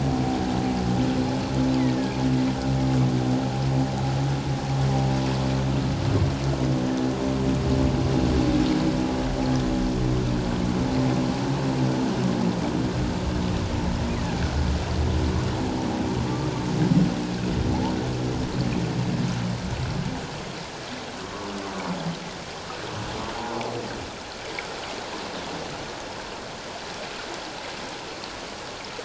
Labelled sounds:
1.8	2.1	killer whale, offshore, call OFF17, 1.6 to 2.2 kHz
23.3	23.7	humpback whale, 0.78 to 1.1 kHz

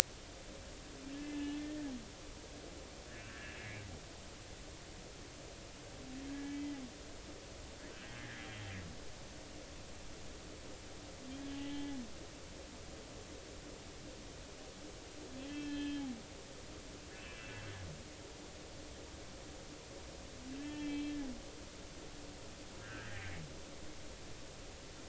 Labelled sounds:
1.1	1.8	humpback whale, 1.7 to 2.7 kHz
3.2	3.8	humpback whale, 1.5 to 2.9 kHz
6.3	6.8	humpback whale, 1.6 to 2.3 kHz
8.1	8.5	humpback whale, 1.6 to 2.0 kHz
11.5	12.0	humpback whale, 0.80 to 3.2 kHz
15.5	16.1	humpback whale, 1.7 to 3.3 kHz
17.1	17.7	humpback whale, 2.3 to 2.8 kHz
20.6	21.2	humpback whale, 1.7 to 3.3 kHz
22.8	23.2	humpback whale, 1.4 to 1.9 kHz

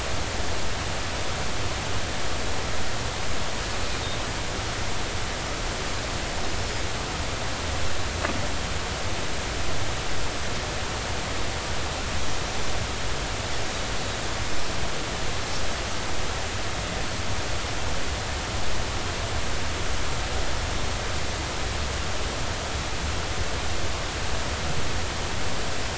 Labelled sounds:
6.6	6.9	Pacific white-sided dolphin, 4.8 to 5.3 kHz

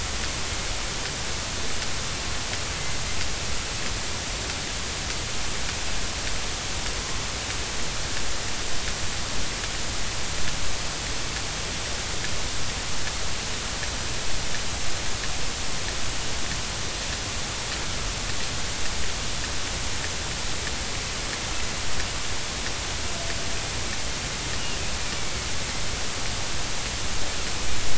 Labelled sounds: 25.2	25.5	killer whale, northern resident, A clan, AA subclan, 2.2 to 2.4 kHz

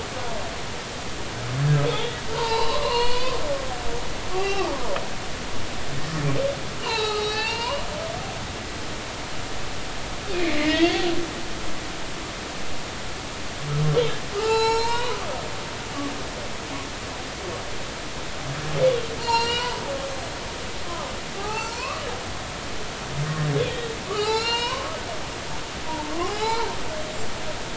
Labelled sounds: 1.8	4.7	humpback whale, 0.83 to 4.7 kHz
6.8	7.9	humpback whale, 0.80 to 4.8 kHz
10.3	11.0	humpback whale, 1.8 to 2.6 kHz
14.3	15.2	humpback whale, 0.80 to 8.0 kHz
19.2	19.8	humpback whale, 0.86 to 7.6 kHz
21.4	22.0	humpback whale, 0.80 to 4.6 kHz
23.5	24.9	humpback whale, 0.80 to 5.3 kHz
25.9	26.7	humpback whale, 0.80 to 4.2 kHz

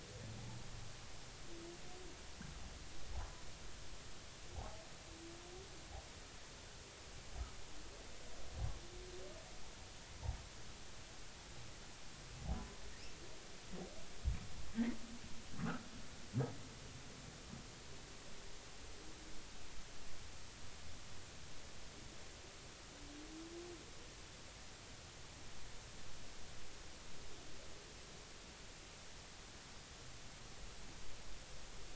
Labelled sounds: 4.5	4.8	humpback whale, 0.80 to 0.93 kHz

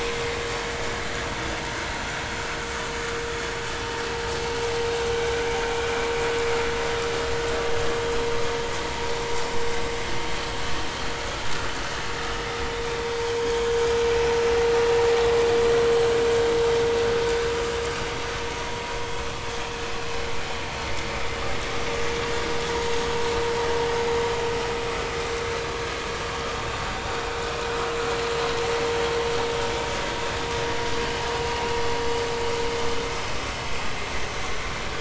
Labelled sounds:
9.3	9.6	vessel noise, 7.5 to 7.6 kHz

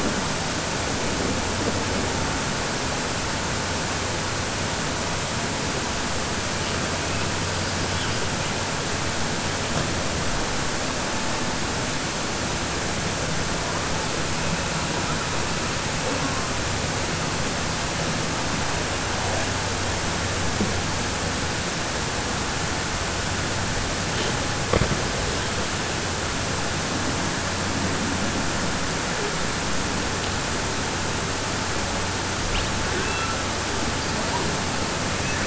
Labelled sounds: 32.9	33.3	killer whale, southern resident, 1.6 to 4.1 kHz

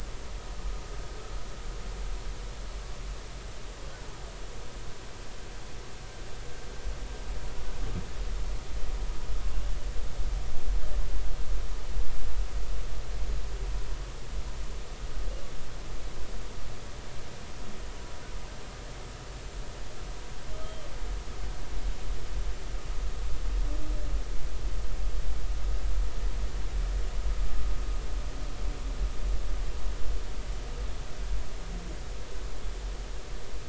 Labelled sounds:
20.6	20.9	humpback whale, 3.0 to 3.3 kHz

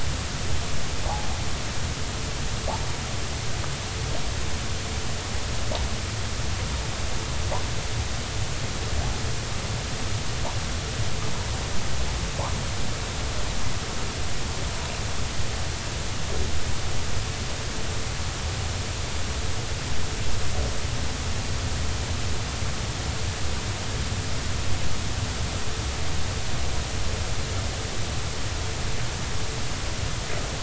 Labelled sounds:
1.0	1.3	humpback whale, 0.80 to 0.99 kHz

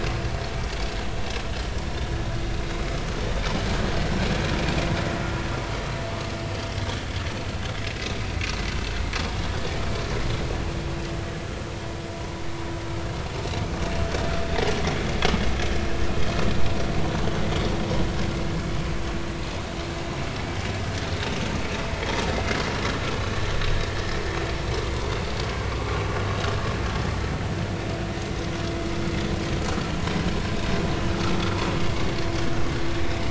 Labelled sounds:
30.5	30.8	vessel noise, 3.6 to 3.8 kHz

